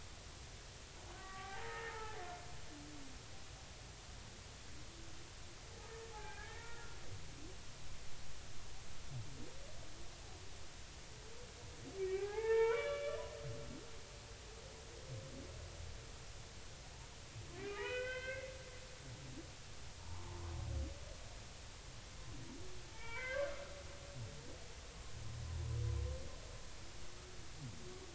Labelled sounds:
1.2	2.2	humpback whale, 0.80 to 2.0 kHz
6.1	7.0	humpback whale, 0.80 to 1.9 kHz
12.0	13.2	humpback whale, 0.80 to 3.0 kHz
17.7	18.5	humpback whale, 1.4 to 3.2 kHz
20.0	20.4	humpback whale, 0.83 to 1.1 kHz
22.9	23.5	humpback whale, 0.83 to 3.3 kHz

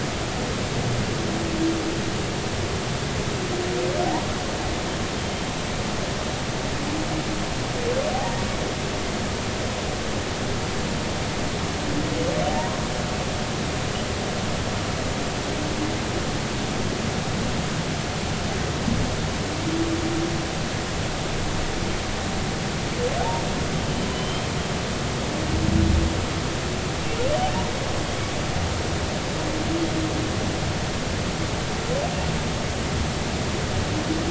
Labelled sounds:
12.5	12.8	humpback whale, 0.80 to 1.1 kHz
24.1	24.5	humpback whale, 2.9 to 3.2 kHz

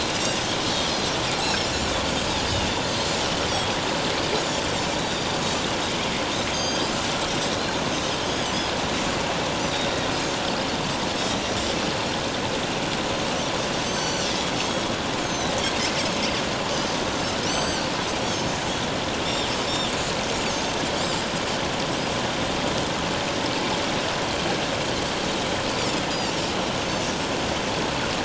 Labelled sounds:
0.7	1.9	Pacific white-sided dolphin, 4.0 to 7.4 kHz
5.0	5.4	Pacific white-sided dolphin, 3.5 to 4.8 kHz
6.5	6.9	Pacific white-sided dolphin, 3.1 to 6.5 kHz
8.0	8.6	Pacific white-sided dolphin, 2.9 to 6.7 kHz
9.7	10.1	Pacific white-sided dolphin, 3.5 to 3.8 kHz
11.3	11.6	Pacific white-sided dolphin, 3.8 to 4.0 kHz
13.8	14.3	Pacific white-sided dolphin, 4.2 to 6.3 kHz
15.2	15.6	Pacific white-sided dolphin, 3.6 to 6.6 kHz
17.4	17.9	Pacific white-sided dolphin, 4.3 to 7.8 kHz
19.2	19.5	Pacific white-sided dolphin, 3.4 to 5.6 kHz

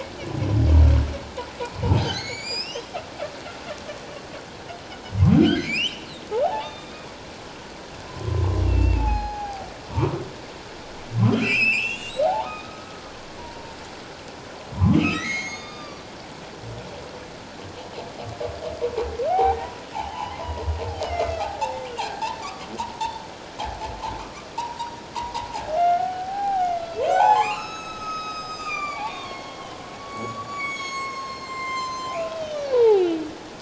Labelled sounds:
1.9	2.9	humpback whale, 1.9 to 7.6 kHz
5.5	7.0	humpback whale, 0.78 to 3.8 kHz
8.1	9.7	humpback whale, 0.78 to 5.1 kHz
11.4	12.9	humpback whale, 0.78 to 7.4 kHz
13.4	13.8	humpback whale, 0.88 to 1.0 kHz
14.8	16.0	humpback whale, 0.91 to 6.8 kHz
19.3	20.4	humpback whale, 0.78 to 3.2 kHz
20.9	21.4	humpback whale, 1.9 to 3.3 kHz
22.0	22.7	humpback whale, 1.0 to 1.8 kHz
24.6	33.2	humpback whale, 0.78 to 8.0 kHz

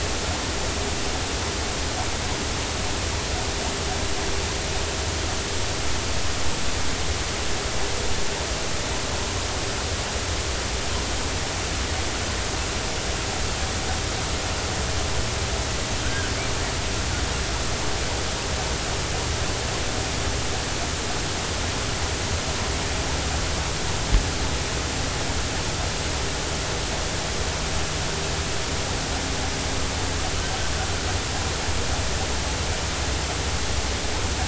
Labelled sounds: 16.0	16.3	killer whale, offshore, 1.4 to 1.7 kHz

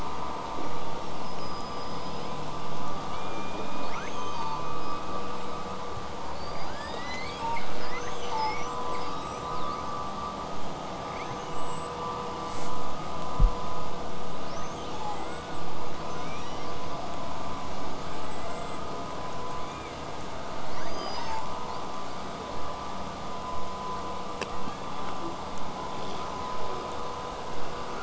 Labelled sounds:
1.2	3.0	killer whale, southern resident, L pod, call S19, 1.5 to 8.0 kHz
3.8	4.7	killer whale, southern resident, L pod, call S02iii, 0.73 to 8.0 kHz
5.4	5.6	killer whale, southern resident, 7.3 to 8.0 kHz
6.3	8.7	killer whale, southern resident, L pod, call S02iii, 0.65 to 8.0 kHz
8.7	9.9	killer whale, southern resident, 1.6 to 8.0 kHz
10.6	10.8	killer whale, southern resident, 7.5 to 8.0 kHz
11.1	12.0	killer whale, southern resident, 1.5 to 8.0 kHz
12.4	12.8	killer whale, southern resident, buzz, 1.4 to 8.0 kHz
14.4	15.2	killer whale, southern resident, L pod, call S02iii, 1.4 to 8.0 kHz
16.0	16.7	killer whale, southern resident, 1.4 to 8.0 kHz
19.6	20.0	killer whale, southern resident, L pod, call S16, 1.7 to 8.0 kHz
20.7	21.6	killer whale, southern resident, L pod, call S02iii, 0.73 to 8.0 kHz
24.6	25.4	killer whale, southern resident, 0.27 to 3.7 kHz

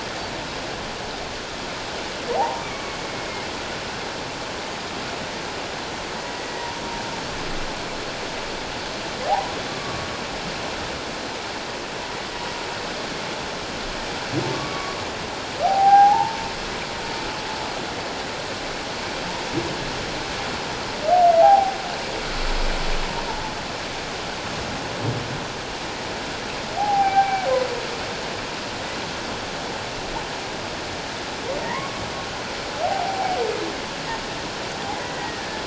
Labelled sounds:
2.4	3.0	humpback whale, 0.78 to 1.3 kHz
6.3	6.7	humpback whale, 1.8 to 2.0 kHz
9.7	10.1	humpback whale, 1.1 to 1.2 kHz
14.5	15.0	humpback whale, 1.1 to 2.3 kHz
15.6	16.4	humpback whale, 0.78 to 0.97 kHz
21.4	21.8	humpback whale, 0.78 to 0.91 kHz
23.3	23.5	humpback whale, 0.84 to 0.97 kHz
26.8	27.4	humpback whale, 0.78 to 0.91 kHz
31.6	32.1	humpback whale, 0.88 to 1.2 kHz
32.8	33.4	humpback whale, 0.78 to 0.88 kHz
35.0	35.5	humpback whale, 1.7 to 2.0 kHz

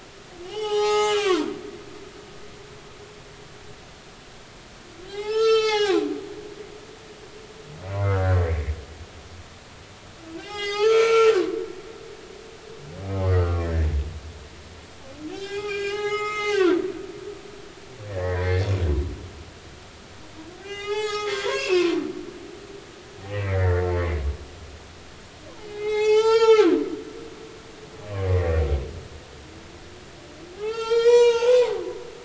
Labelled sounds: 0.4	1.5	humpback whale, 0.80 to 7.2 kHz
5.1	6.1	humpback whale, 0.80 to 8.0 kHz
8.0	8.4	humpback whale, 1.2 to 1.8 kHz
10.4	11.4	humpback whale, 0.80 to 6.5 kHz
13.2	13.9	humpback whale, 0.99 to 4.5 kHz
15.3	18.7	humpback whale, 0.80 to 8.0 kHz
20.6	21.9	humpback whale, 0.80 to 7.3 kHz
23.2	23.8	humpback whale, 1.7 to 2.4 kHz
25.6	26.7	humpback whale, 0.80 to 7.7 kHz
28.3	28.6	humpback whale, 1.8 to 2.1 kHz
30.5	31.7	humpback whale, 0.80 to 6.7 kHz

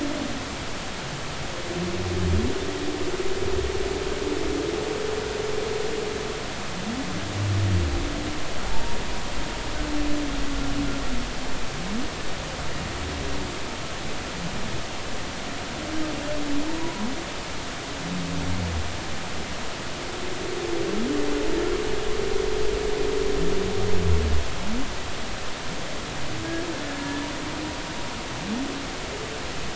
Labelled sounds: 8.7	9.0	humpback whale, 0.86 to 0.99 kHz
16.8	17.1	humpback whale, 0.93 to 1.1 kHz
26.9	27.3	humpback whale, 1.6 to 1.8 kHz

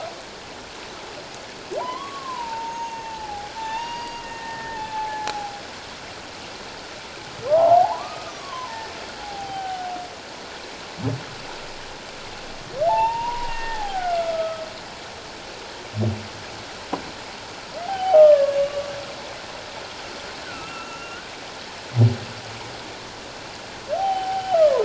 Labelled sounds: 1.8	5.6	humpback whale, 0.78 to 6.7 kHz
7.5	8.9	humpback whale, 0.78 to 2.6 kHz
9.2	9.9	humpback whale, 0.78 to 0.88 kHz
12.9	14.6	humpback whale, 0.78 to 2.9 kHz
17.9	18.9	humpback whale, 0.78 to 3.2 kHz
20.5	21.3	humpback whale, 1.2 to 2.8 kHz
23.9	24.8	humpback whale, 0.78 to 3.2 kHz

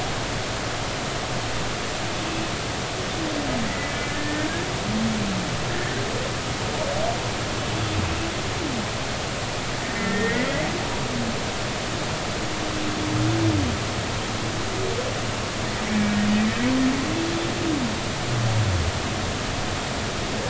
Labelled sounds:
3.7	4.5	humpback whale, 1.7 to 2.0 kHz
5.7	6.0	humpback whale, 1.7 to 2.0 kHz
9.8	10.5	humpback whale, 1.8 to 2.0 kHz
15.8	16.2	humpback whale, 2.2 to 2.4 kHz

